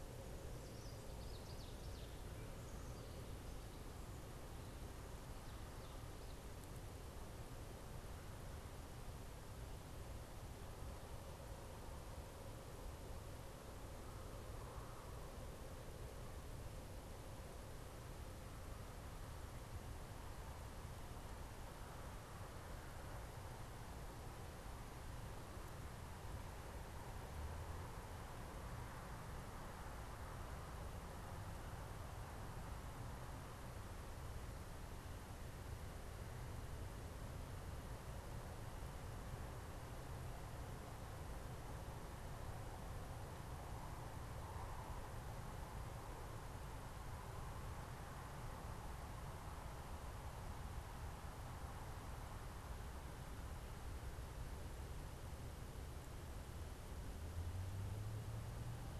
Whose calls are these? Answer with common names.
Ovenbird